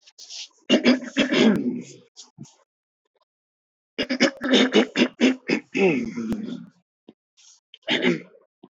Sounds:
Throat clearing